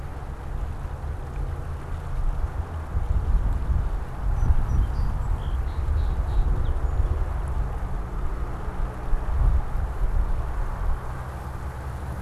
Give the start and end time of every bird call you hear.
4.2s-7.3s: Song Sparrow (Melospiza melodia)

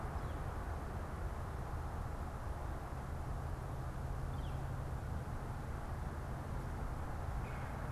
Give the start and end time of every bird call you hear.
4.1s-4.7s: Northern Flicker (Colaptes auratus)
7.3s-7.8s: Red-bellied Woodpecker (Melanerpes carolinus)

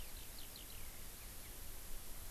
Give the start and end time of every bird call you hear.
0.0s-0.9s: Eurasian Skylark (Alauda arvensis)

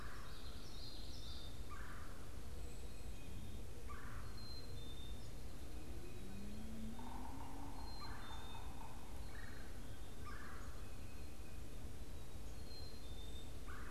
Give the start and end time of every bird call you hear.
0.0s-13.9s: Black-capped Chickadee (Poecile atricapillus)
0.0s-13.9s: Red-bellied Woodpecker (Melanerpes carolinus)
6.9s-9.2s: Yellow-bellied Sapsucker (Sphyrapicus varius)

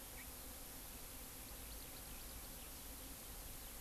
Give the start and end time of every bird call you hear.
1.2s-3.8s: Eurasian Skylark (Alauda arvensis)

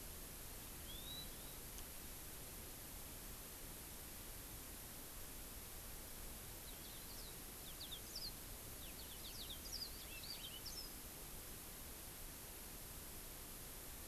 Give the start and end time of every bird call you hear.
0.8s-1.6s: Hawaii Amakihi (Chlorodrepanis virens)
6.6s-8.3s: Yellow-fronted Canary (Crithagra mozambica)
8.7s-11.1s: Yellow-fronted Canary (Crithagra mozambica)

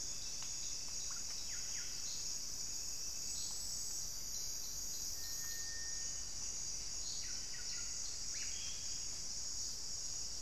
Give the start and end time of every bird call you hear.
1.1s-2.4s: Buff-breasted Wren (Cantorchilus leucotis)
5.4s-10.4s: Thrush-like Wren (Campylorhynchus turdinus)
6.9s-8.7s: Buff-breasted Wren (Cantorchilus leucotis)

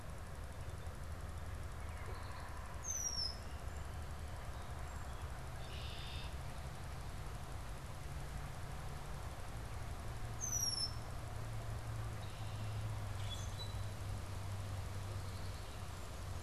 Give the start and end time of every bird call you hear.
2.6s-3.5s: Red-winged Blackbird (Agelaius phoeniceus)
4.9s-6.5s: Red-winged Blackbird (Agelaius phoeniceus)
10.2s-11.2s: Red-winged Blackbird (Agelaius phoeniceus)
12.9s-14.1s: Common Grackle (Quiscalus quiscula)

